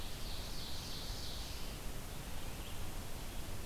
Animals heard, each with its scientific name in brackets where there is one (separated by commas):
Ovenbird (Seiurus aurocapilla), Red-eyed Vireo (Vireo olivaceus)